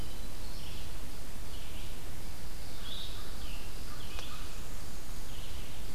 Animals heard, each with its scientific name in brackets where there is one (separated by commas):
Blue-headed Vireo (Vireo solitarius), Red-eyed Vireo (Vireo olivaceus), American Crow (Corvus brachyrhynchos)